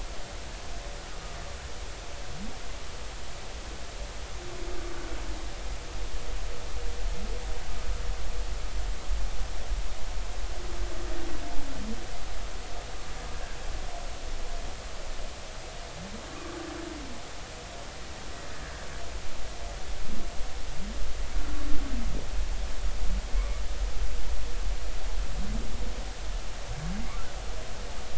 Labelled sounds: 23.4	23.6	humpback whale, 0.99 to 1.3 kHz

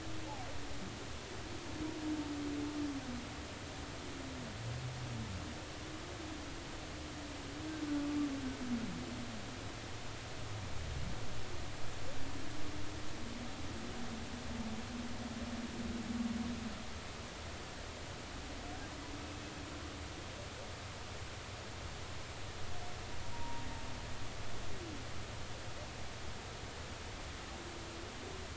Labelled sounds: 23.3	23.6	humpback whale, 0.86 to 0.99 kHz

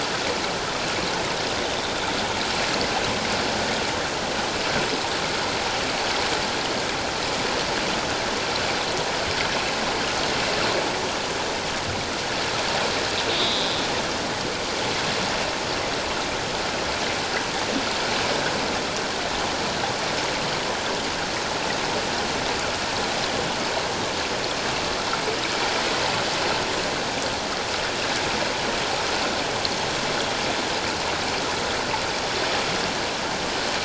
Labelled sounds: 13.3	13.8	killer whale, northern resident, A clan, call N03, 3.3 to 4.0 kHz

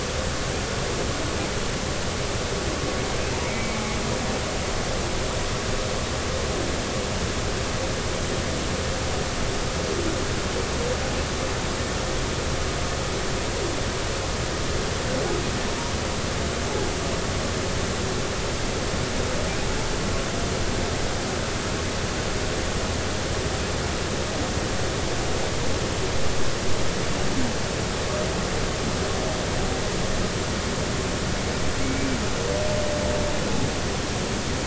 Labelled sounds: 3.5	3.8	humpback whale, 2.2 to 2.4 kHz
31.8	32.2	humpback whale, 2.1 to 2.4 kHz

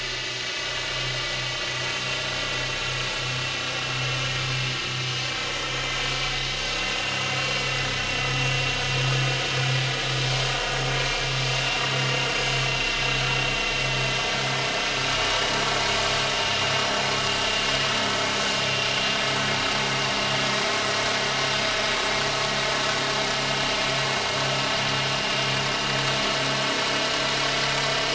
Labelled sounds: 2.0	2.2	vessel noise, 2.7 to 2.8 kHz
6.9	7.2	vessel noise, 2.7 to 2.8 kHz
15.0	15.6	vessel noise, 2.8 to 2.9 kHz

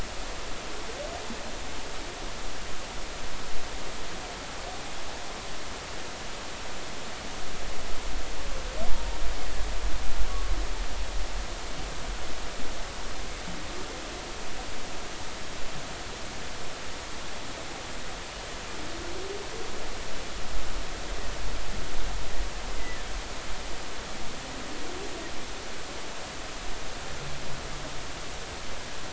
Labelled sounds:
10.3	10.5	humpback whale, 1.1 to 1.2 kHz
22.7	23.0	humpback whale, 1.9 to 2.1 kHz

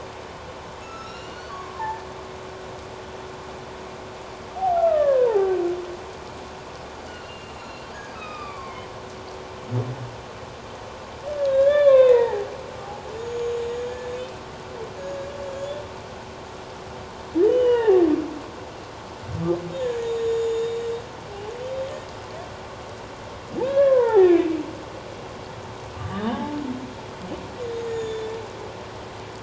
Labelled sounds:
1.1	1.4	humpback whale, 5.5 to 7.3 kHz
1.7	2.0	humpback whale, 0.81 to 1.9 kHz
4.5	5.5	humpback whale, 0.78 to 2.0 kHz
7.1	7.9	humpback whale, 2.7 to 6.9 kHz
8.1	8.9	humpback whale, 0.97 to 5.0 kHz
11.5	12.5	humpback whale, 0.78 to 3.9 kHz
12.8	13.6	humpback whale, 0.78 to 6.9 kHz
15.4	15.8	humpback whale, 3.2 to 7.3 kHz
17.4	18.0	humpback whale, 0.78 to 3.2 kHz
19.7	20.8	humpback whale, 3.5 to 7.0 kHz
23.6	24.5	humpback whale, 0.78 to 2.7 kHz
26.0	26.6	humpback whale, 0.78 to 3.8 kHz
27.8	28.3	humpback whale, 1.7 to 7.0 kHz

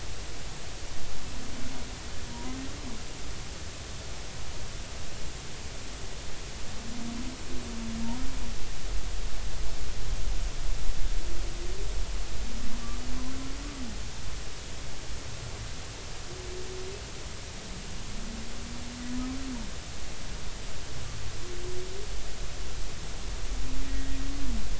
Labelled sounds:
2.3	2.6	humpback whale, 0.90 to 1.1 kHz
12.8	13.1	humpback whale, 1.1 to 1.3 kHz
23.9	24.2	humpback whale, 1.8 to 2.0 kHz

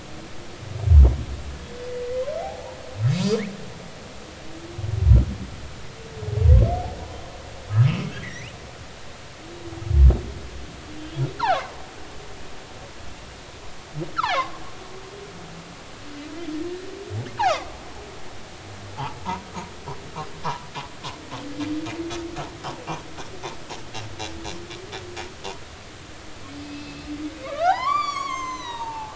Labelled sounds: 2.4	2.8	humpback whale, 0.80 to 0.99 kHz
8.2	8.6	humpback whale, 1.8 to 3.0 kHz
11.0	11.7	humpback whale, 0.99 to 3.4 kHz
14.2	14.6	humpback whale, 0.96 to 5.0 kHz
17.4	17.7	humpback whale, 0.96 to 2.7 kHz
20.4	20.7	humpback whale, 0.80 to 1.4 kHz
26.6	29.1	humpback whale, 0.80 to 7.6 kHz

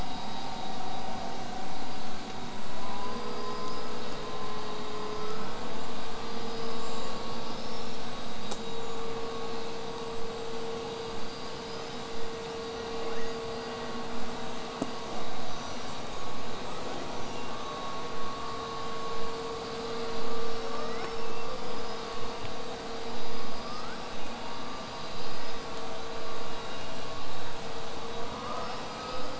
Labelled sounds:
3.0	4.4	killer whale, southern resident, 4.6 to 8.0 kHz
4.7	5.5	killer whale, southern resident, 4.7 to 8.0 kHz
6.1	8.1	killer whale, southern resident, 4.6 to 8.0 kHz
8.0	9.0	killer whale, southern resident, whistle, 6.6 to 8.0 kHz
11.2	12.8	killer whale, southern resident, 4.6 to 8.0 kHz
13.1	13.4	killer whale, southern resident, 1.3 to 6.8 kHz
20.4	21.5	killer whale, southern resident, L pod, call S19, 1.1 to 5.6 kHz
21.4	22.1	killer whale, southern resident, 4.6 to 8.0 kHz
23.0	24.3	killer whale, southern resident, L pod, call S19, 0.95 to 8.0 kHz
24.4	25.7	killer whale, southern resident, 4.5 to 8.0 kHz

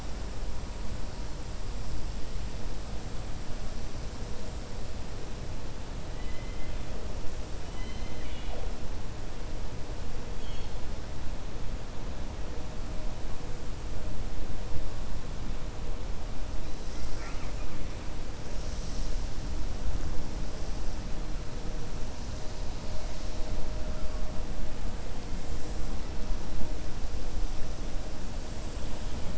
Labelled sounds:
6.1	6.8	killer whale, 1.9 to 3.1 kHz
7.6	8.7	killer whale, 0.50 to 4.2 kHz
10.3	10.7	killer whale, 2.1 to 4.4 kHz
16.9	17.7	killer whale, 1.1 to 3.0 kHz

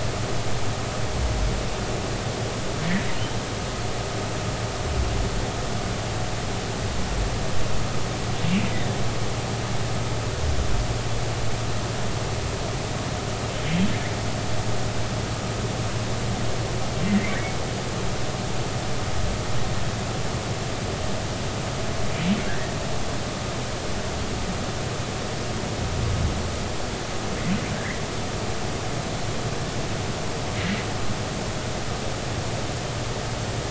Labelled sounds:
22.5	22.7	humpback whale, 1.5 to 2.0 kHz
27.8	28.0	humpback whale, 1.5 to 2.2 kHz

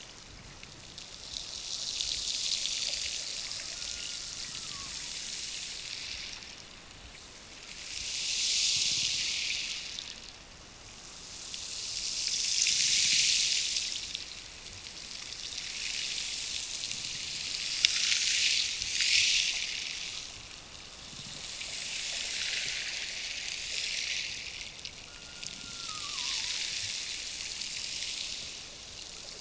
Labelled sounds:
3.7	5.0	killer whale, Bigg's (transient), Gulf of Alaska transient, 0.91 to 1.5 kHz
25.1	26.8	killer whale, Bigg's (transient), Gulf of Alaska transient, 0.66 to 1.5 kHz

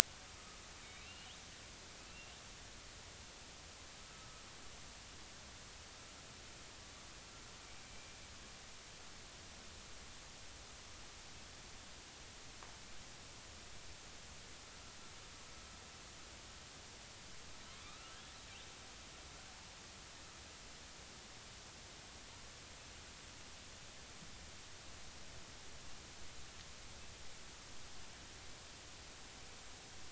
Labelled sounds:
0.8	1.3	killer whale, northern resident, A clan, AB subclan, 2.2 to 3.9 kHz
2.1	2.3	killer whale, northern resident, A clan, AB subclan, 2.6 to 2.8 kHz
7.8	8.2	killer whale, northern resident, A clan, AB subclan, 2.3 to 2.5 kHz
17.7	18.2	killer whale, northern resident, A clan, AB subclan, 0.96 to 3.1 kHz

